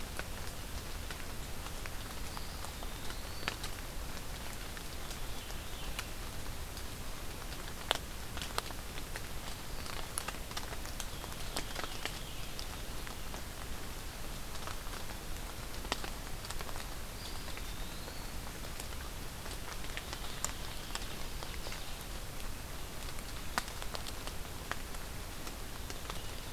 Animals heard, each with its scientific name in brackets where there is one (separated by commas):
Eastern Wood-Pewee (Contopus virens), Veery (Catharus fuscescens), Ovenbird (Seiurus aurocapilla)